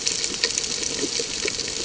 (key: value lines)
label: ambient
recorder: HydroMoth